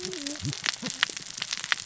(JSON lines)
{"label": "biophony, cascading saw", "recorder": "SoundTrap 600 or HydroMoth"}